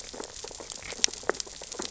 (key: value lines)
label: biophony, sea urchins (Echinidae)
recorder: SoundTrap 600 or HydroMoth